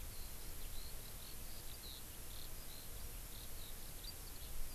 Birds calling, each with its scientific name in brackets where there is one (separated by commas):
Eurasian Skylark (Alauda arvensis)